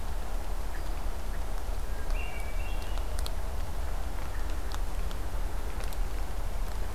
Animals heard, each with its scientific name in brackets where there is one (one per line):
Hermit Thrush (Catharus guttatus)